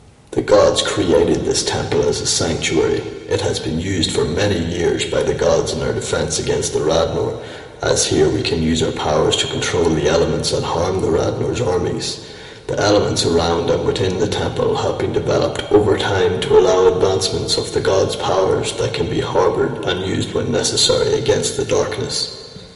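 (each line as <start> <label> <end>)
0.0 A man speaks with a deep, raspy voice in an echoing indoor environment. 22.8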